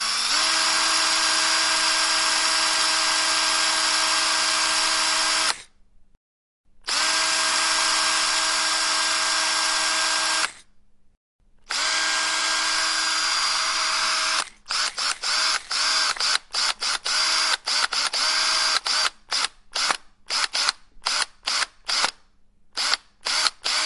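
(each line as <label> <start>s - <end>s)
A drill is running continuously. 0.1s - 5.7s
A drill is running continuously. 6.9s - 10.6s
A drill is running continuously. 11.7s - 14.5s
A drill is being used. 14.8s - 23.9s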